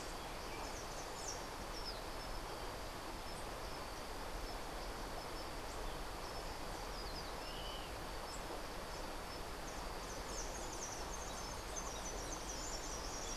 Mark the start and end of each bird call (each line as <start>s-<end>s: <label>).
10.1s-13.2s: White-eared Ground-Sparrow (Melozone leucotis)